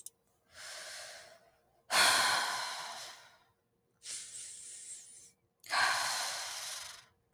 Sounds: Sigh